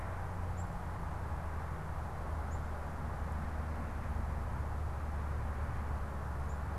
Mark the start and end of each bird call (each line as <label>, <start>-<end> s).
unidentified bird, 0.0-6.8 s